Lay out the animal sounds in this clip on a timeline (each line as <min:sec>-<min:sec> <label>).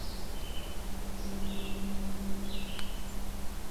0:00.0-0:03.7 Red-eyed Vireo (Vireo olivaceus)